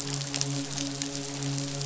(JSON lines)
{"label": "biophony, midshipman", "recorder": "SoundTrap 500"}